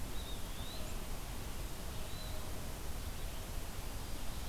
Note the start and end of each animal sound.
[0.00, 0.96] Eastern Wood-Pewee (Contopus virens)
[0.00, 3.62] Red-eyed Vireo (Vireo olivaceus)
[1.89, 2.49] Eastern Wood-Pewee (Contopus virens)

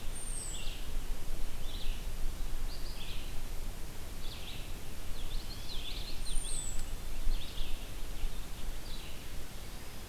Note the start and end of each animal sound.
[0.00, 10.09] Red-eyed Vireo (Vireo olivaceus)
[0.11, 0.66] American Robin (Turdus migratorius)
[5.05, 6.01] Eastern Wood-Pewee (Contopus virens)
[5.10, 6.81] Common Yellowthroat (Geothlypis trichas)
[6.13, 6.91] American Robin (Turdus migratorius)

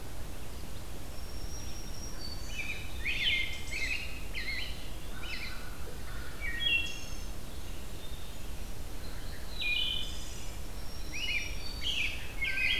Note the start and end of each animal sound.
[0.80, 2.73] Black-throated Green Warbler (Setophaga virens)
[2.42, 5.69] American Robin (Turdus migratorius)
[4.31, 5.39] Eastern Wood-Pewee (Contopus virens)
[6.31, 7.33] Wood Thrush (Hylocichla mustelina)
[9.46, 10.64] Wood Thrush (Hylocichla mustelina)
[10.51, 12.24] Black-throated Green Warbler (Setophaga virens)
[11.04, 12.79] American Robin (Turdus migratorius)

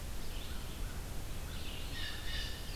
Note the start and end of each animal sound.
[0.00, 2.75] Red-eyed Vireo (Vireo olivaceus)
[0.40, 1.69] American Crow (Corvus brachyrhynchos)
[1.63, 2.75] Blue Jay (Cyanocitta cristata)

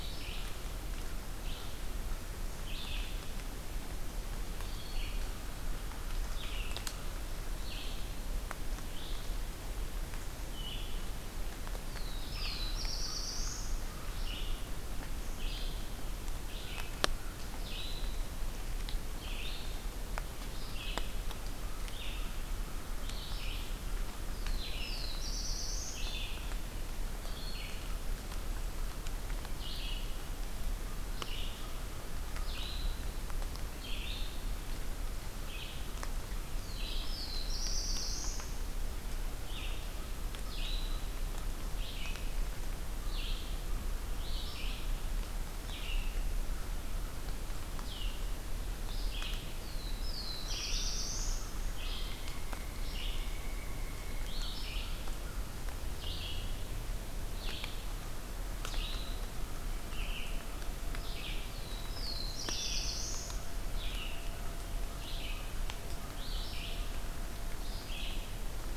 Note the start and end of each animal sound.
[0.00, 44.93] Red-eyed Vireo (Vireo olivaceus)
[11.75, 13.90] Black-throated Blue Warbler (Setophaga caerulescens)
[24.20, 26.33] Black-throated Blue Warbler (Setophaga caerulescens)
[36.43, 38.81] Black-throated Blue Warbler (Setophaga caerulescens)
[45.48, 68.76] Red-eyed Vireo (Vireo olivaceus)
[49.45, 51.66] Black-throated Blue Warbler (Setophaga caerulescens)
[51.81, 54.49] Pileated Woodpecker (Dryocopus pileatus)
[61.35, 63.61] Black-throated Blue Warbler (Setophaga caerulescens)

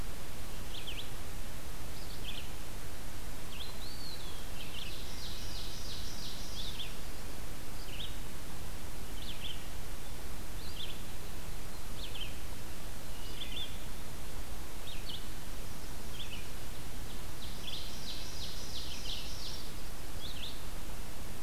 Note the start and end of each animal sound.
[0.00, 20.91] Red-eyed Vireo (Vireo olivaceus)
[3.58, 4.70] Eastern Wood-Pewee (Contopus virens)
[4.76, 6.58] Ovenbird (Seiurus aurocapilla)
[12.97, 13.85] Wood Thrush (Hylocichla mustelina)
[17.44, 19.98] Ovenbird (Seiurus aurocapilla)

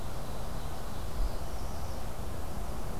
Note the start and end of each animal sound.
[0.00, 1.34] Ovenbird (Seiurus aurocapilla)
[0.89, 1.97] Northern Parula (Setophaga americana)

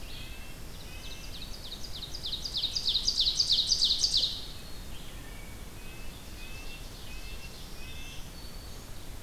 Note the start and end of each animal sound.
[0.01, 1.37] Red-breasted Nuthatch (Sitta canadensis)
[0.56, 4.63] Ovenbird (Seiurus aurocapilla)
[4.87, 8.39] Red-breasted Nuthatch (Sitta canadensis)
[5.76, 7.94] Ovenbird (Seiurus aurocapilla)
[7.89, 9.01] Black-throated Green Warbler (Setophaga virens)

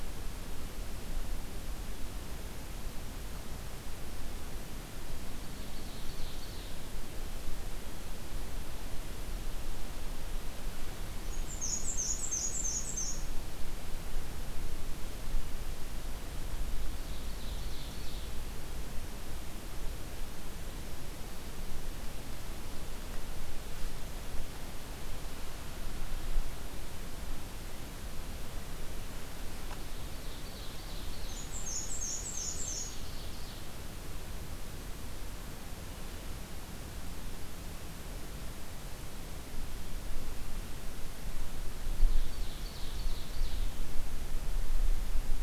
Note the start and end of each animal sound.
[5.04, 7.35] Ovenbird (Seiurus aurocapilla)
[11.24, 13.55] Black-and-white Warbler (Mniotilta varia)
[16.54, 18.84] Ovenbird (Seiurus aurocapilla)
[29.65, 31.67] Ovenbird (Seiurus aurocapilla)
[31.03, 33.34] Black-and-white Warbler (Mniotilta varia)
[41.86, 44.17] Ovenbird (Seiurus aurocapilla)

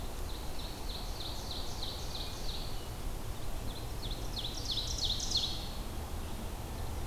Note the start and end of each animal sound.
[0.01, 2.71] Ovenbird (Seiurus aurocapilla)
[3.38, 5.77] Ovenbird (Seiurus aurocapilla)

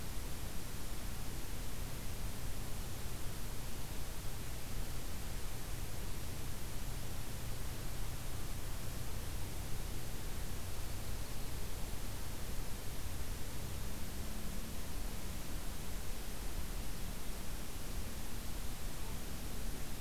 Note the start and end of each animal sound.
[10.67, 11.60] Yellow-rumped Warbler (Setophaga coronata)

